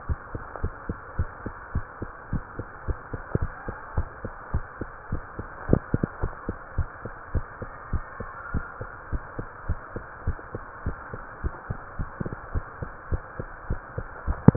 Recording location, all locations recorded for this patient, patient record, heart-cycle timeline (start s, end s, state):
tricuspid valve (TV)
aortic valve (AV)+pulmonary valve (PV)+tricuspid valve (TV)+mitral valve (MV)
#Age: Child
#Sex: Female
#Height: 130.0 cm
#Weight: 34.3 kg
#Pregnancy status: False
#Murmur: Absent
#Murmur locations: nan
#Most audible location: nan
#Systolic murmur timing: nan
#Systolic murmur shape: nan
#Systolic murmur grading: nan
#Systolic murmur pitch: nan
#Systolic murmur quality: nan
#Diastolic murmur timing: nan
#Diastolic murmur shape: nan
#Diastolic murmur grading: nan
#Diastolic murmur pitch: nan
#Diastolic murmur quality: nan
#Outcome: Normal
#Campaign: 2015 screening campaign
0.00	0.60	unannotated
0.60	0.74	S1
0.74	0.88	systole
0.88	0.98	S2
0.98	1.16	diastole
1.16	1.30	S1
1.30	1.44	systole
1.44	1.54	S2
1.54	1.74	diastole
1.74	1.86	S1
1.86	2.00	systole
2.00	2.10	S2
2.10	2.30	diastole
2.30	2.44	S1
2.44	2.58	systole
2.58	2.68	S2
2.68	2.84	diastole
2.84	2.98	S1
2.98	3.12	systole
3.12	3.24	S2
3.24	3.42	diastole
3.42	3.54	S1
3.54	3.68	systole
3.68	3.78	S2
3.78	3.96	diastole
3.96	4.10	S1
4.10	4.22	systole
4.22	4.34	S2
4.34	4.52	diastole
4.52	4.66	S1
4.66	4.80	systole
4.80	4.90	S2
4.90	5.10	diastole
5.10	5.24	S1
5.24	5.38	systole
5.38	5.48	S2
5.48	5.66	diastole
5.66	5.80	S1
5.80	5.92	systole
5.92	6.08	S2
6.08	6.22	diastole
6.22	6.34	S1
6.34	6.48	systole
6.48	6.60	S2
6.60	6.76	diastole
6.76	6.88	S1
6.88	7.04	systole
7.04	7.14	S2
7.14	7.32	diastole
7.32	7.46	S1
7.46	7.62	systole
7.62	7.72	S2
7.72	7.90	diastole
7.90	8.04	S1
8.04	8.20	systole
8.20	8.30	S2
8.30	8.52	diastole
8.52	8.66	S1
8.66	8.80	systole
8.80	8.90	S2
8.90	9.10	diastole
9.10	9.24	S1
9.24	9.38	systole
9.38	9.48	S2
9.48	9.66	diastole
9.66	9.80	S1
9.80	9.94	systole
9.94	10.04	S2
10.04	10.24	diastole
10.24	10.38	S1
10.38	10.54	systole
10.54	10.64	S2
10.64	10.84	diastole
10.84	10.98	S1
10.98	11.12	systole
11.12	11.24	S2
11.24	11.42	diastole
11.42	11.56	S1
11.56	11.70	systole
11.70	11.80	S2
11.80	11.98	diastole
11.98	12.10	S1
12.10	12.20	systole
12.20	12.30	S2
12.30	12.50	diastole
12.50	12.66	S1
12.66	12.80	systole
12.80	12.92	S2
12.92	13.10	diastole
13.10	13.24	S1
13.24	13.38	systole
13.38	13.50	S2
13.50	13.68	diastole
13.68	13.82	S1
13.82	13.96	systole
13.96	14.08	S2
14.08	14.24	diastole
14.24	14.38	S1
14.38	14.56	unannotated